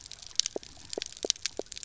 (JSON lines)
{"label": "biophony, knock croak", "recorder": "SoundTrap 300"}